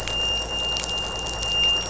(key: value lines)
label: anthrophony, boat engine
recorder: SoundTrap 500